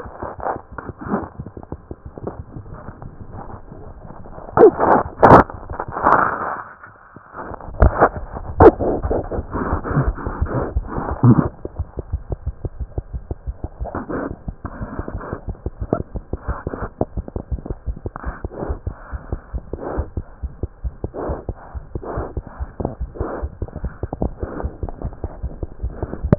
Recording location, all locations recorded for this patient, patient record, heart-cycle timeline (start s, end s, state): aortic valve (AV)
aortic valve (AV)+mitral valve (MV)
#Age: Infant
#Sex: Male
#Height: 62.0 cm
#Weight: 6.3 kg
#Pregnancy status: False
#Murmur: Absent
#Murmur locations: nan
#Most audible location: nan
#Systolic murmur timing: nan
#Systolic murmur shape: nan
#Systolic murmur grading: nan
#Systolic murmur pitch: nan
#Systolic murmur quality: nan
#Diastolic murmur timing: nan
#Diastolic murmur shape: nan
#Diastolic murmur grading: nan
#Diastolic murmur pitch: nan
#Diastolic murmur quality: nan
#Outcome: Abnormal
#Campaign: 2015 screening campaign
0.00	11.77	unannotated
11.77	11.85	S1
11.85	11.96	systole
11.96	12.02	S2
12.02	12.10	diastole
12.10	12.20	S1
12.20	12.29	systole
12.29	12.36	S2
12.36	12.44	diastole
12.44	12.53	S1
12.53	12.63	systole
12.63	12.69	S2
12.69	12.79	diastole
12.79	12.87	S1
12.87	12.95	systole
12.95	13.02	S2
13.02	13.12	diastole
13.12	13.19	S1
13.19	13.28	systole
13.28	13.35	S2
13.35	13.46	diastole
13.46	13.54	S1
13.54	13.62	systole
13.62	13.68	S2
13.68	13.78	diastole
13.78	13.86	S1
13.86	26.38	unannotated